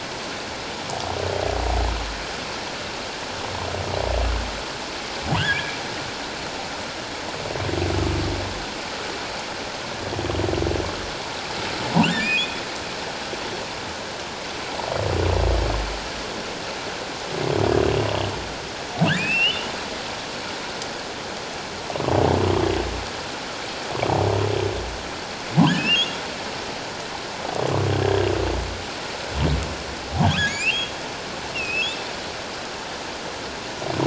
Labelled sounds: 5.3	5.8	humpback whale, 1.4 to 3.5 kHz
12.1	12.6	humpback whale, 1.4 to 2.8 kHz
19.2	19.7	humpback whale, 2.3 to 3.1 kHz
25.7	26.1	humpback whale, 1.5 to 2.9 kHz
28.0	28.3	humpback whale, 1.6 to 1.8 kHz
30.2	30.9	humpback whale, 1.5 to 7.5 kHz
31.5	31.9	humpback whale, 2.4 to 2.9 kHz

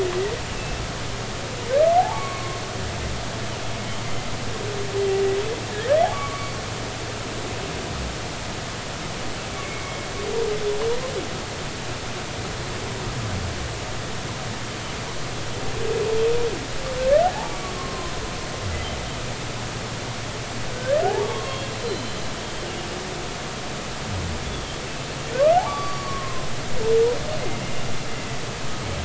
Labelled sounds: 2.0	2.6	humpback whale, 0.80 to 1.2 kHz
6.1	6.6	humpback whale, 1.1 to 4.6 kHz
9.5	10.1	humpback whale, 2.1 to 2.4 kHz
17.7	18.1	humpback whale, 0.99 to 1.1 kHz
20.7	22.2	humpback whale, 0.80 to 4.2 kHz
24.4	24.8	humpback whale, 3.1 to 3.5 kHz
25.7	26.5	humpback whale, 0.99 to 4.6 kHz

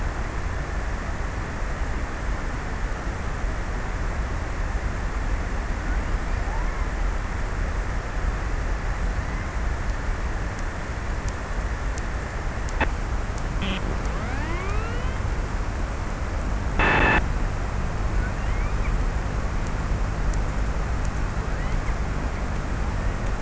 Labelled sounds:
17.8	19.5	killer whale, offshore, 0.77 to 3.6 kHz
20.6	22.8	killer whale, offshore, 0.37 to 2.9 kHz

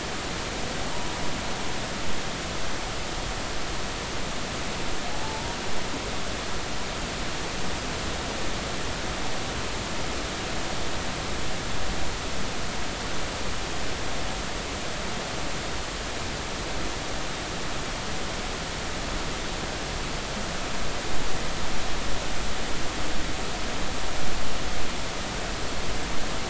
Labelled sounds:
5.1	5.6	humpback whale, 0.80 to 0.99 kHz

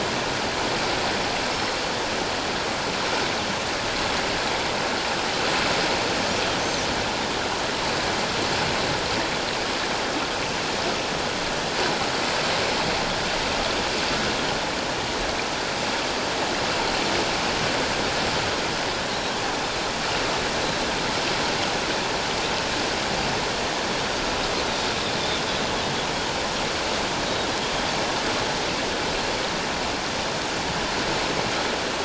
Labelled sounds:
1.5	1.8	Pacific white-sided dolphin, 5.2 to 5.4 kHz
27.2	27.5	Pacific white-sided dolphin, 3.7 to 3.8 kHz

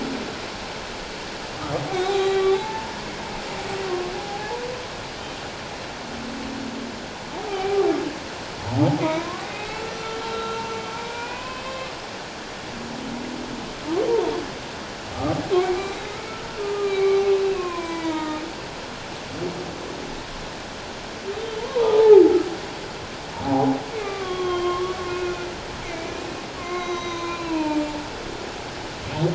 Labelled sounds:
1.9	2.9	humpback whale, 0.78 to 4.1 kHz
3.8	4.6	humpback whale, 0.78 to 1.2 kHz
7.4	7.8	humpback whale, 0.78 to 2.5 kHz
8.8	10.6	humpback whale, 0.78 to 3.9 kHz
11.0	11.9	humpback whale, 0.94 to 2.7 kHz
15.1	16.2	humpback whale, 1.1 to 2.2 kHz
16.6	17.2	humpback whale, 1.2 to 4.0 kHz
17.5	18.4	humpback whale, 0.84 to 7.2 kHz
21.6	22.3	humpback whale, 0.78 to 1.1 kHz
23.4	27.8	humpback whale, 0.78 to 6.3 kHz

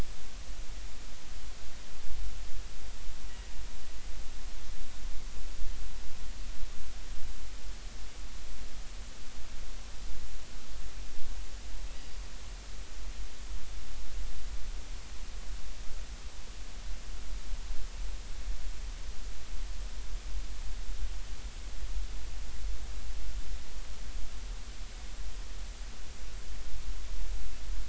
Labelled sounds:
12.0	12.2	killer whale, northern resident, G clan, 4.7 to 4.9 kHz

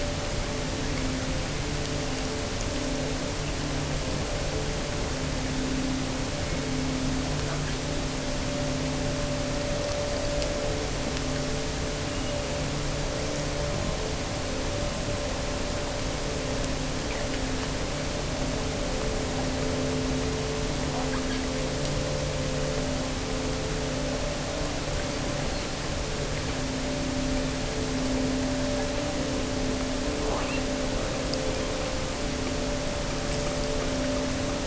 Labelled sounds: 30.3	30.8	killer whale, offshore, 0.68 to 3.0 kHz

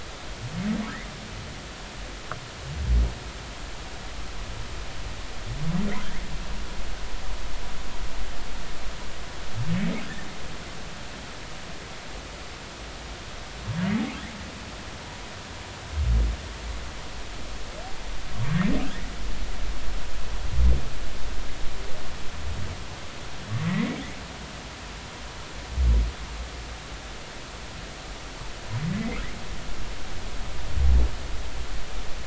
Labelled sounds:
6.0	6.3	humpback whale, 1.4 to 2.2 kHz
18.3	18.6	humpback whale, 1.0 to 1.2 kHz
23.6	24.0	humpback whale, 1.9 to 2.3 kHz
28.9	29.2	humpback whale, 1.9 to 2.4 kHz

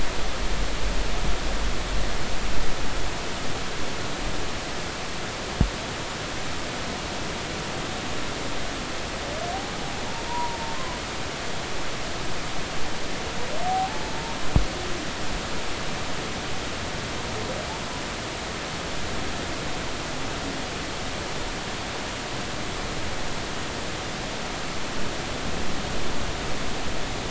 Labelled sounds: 10.3	10.6	humpback whale, 0.90 to 1.0 kHz
13.7	14.0	humpback whale, 0.80 to 0.90 kHz

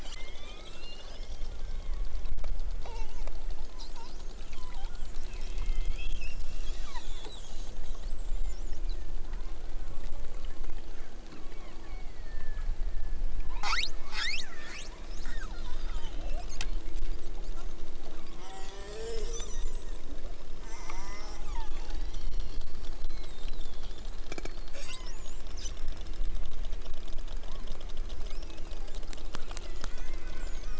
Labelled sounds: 0.1	1.1	killer whale, southern Alaska resident, 0.60 to 8.0 kHz
1.6	2.1	killer whale, southern Alaska resident, 1.2 to 2.7 kHz
6.7	7.3	killer whale, southern Alaska resident, 0.73 to 4.2 kHz
8.2	8.8	killer whale, southern Alaska resident, 1.3 to 5.5 kHz
11.3	12.7	killer whale, southern Alaska resident, 1.1 to 4.8 kHz
13.5	15.5	killer whale, southern Alaska resident, 0.55 to 8.0 kHz
19.1	20.0	killer whale, southern Alaska resident, 1.1 to 8.0 kHz
21.4	22.8	killer whale, southern Alaska resident, 0.69 to 8.0 kHz
24.8	25.3	killer whale, southern Alaska resident, 0.69 to 3.9 kHz
27.4	27.7	killer whale, southern Alaska resident, 0.78 to 2.0 kHz
28.3	28.7	killer whale, southern Alaska resident, 1.7 to 3.7 kHz

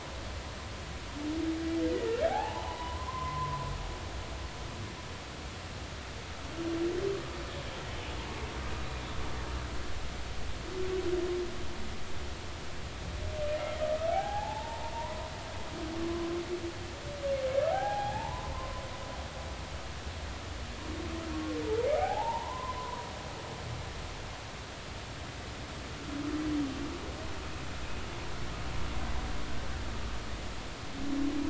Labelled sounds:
2.3	3.6	humpback whale, 0.80 to 1.8 kHz
14.1	15.3	humpback whale, 0.80 to 1.8 kHz
16.0	16.3	humpback whale, 0.99 to 1.2 kHz
17.7	18.8	humpback whale, 0.80 to 3.4 kHz
22.0	23.1	humpback whale, 0.80 to 1.1 kHz

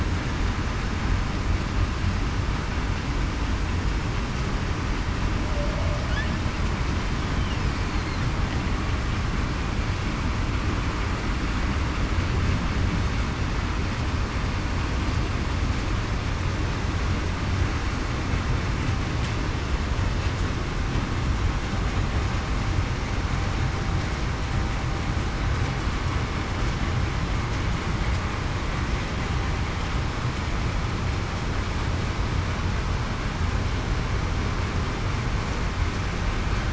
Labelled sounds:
5.5	5.9	humpback whale, 0.56 to 0.68 kHz

